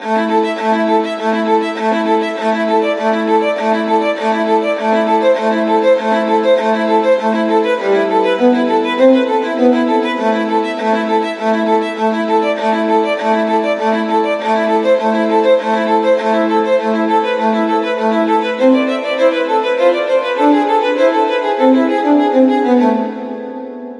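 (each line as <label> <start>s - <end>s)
A violin plays clearly and rhythmically with a bright and precise sound. 0.0s - 24.0s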